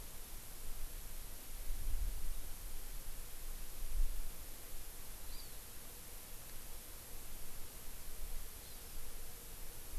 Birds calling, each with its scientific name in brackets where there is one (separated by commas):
Hawaii Amakihi (Chlorodrepanis virens)